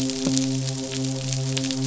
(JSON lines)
{"label": "biophony, midshipman", "recorder": "SoundTrap 500"}